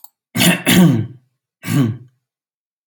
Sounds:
Throat clearing